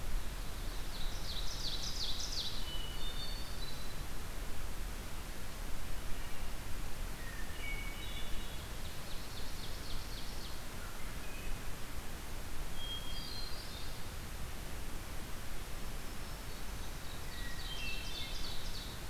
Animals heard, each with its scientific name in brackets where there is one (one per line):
Ovenbird (Seiurus aurocapilla)
Hermit Thrush (Catharus guttatus)
Black-throated Green Warbler (Setophaga virens)